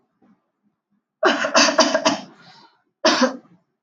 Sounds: Cough